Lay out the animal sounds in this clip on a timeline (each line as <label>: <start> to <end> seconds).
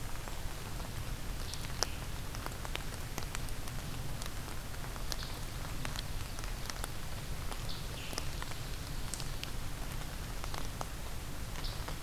Scarlet Tanager (Piranga olivacea): 0.0 to 12.0 seconds